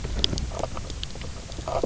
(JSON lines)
{"label": "biophony, knock croak", "recorder": "SoundTrap 300"}